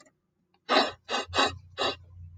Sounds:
Sniff